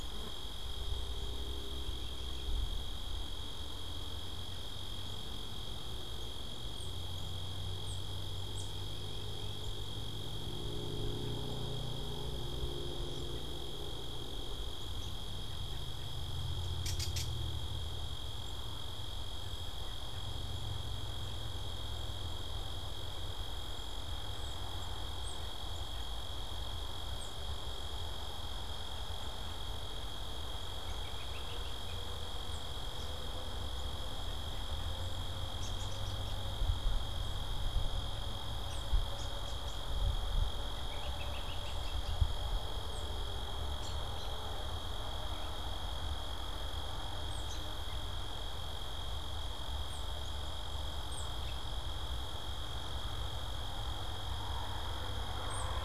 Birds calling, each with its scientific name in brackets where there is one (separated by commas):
American Robin (Turdus migratorius), Gray Catbird (Dumetella carolinensis), Tufted Titmouse (Baeolophus bicolor)